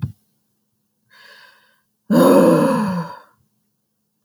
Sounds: Sigh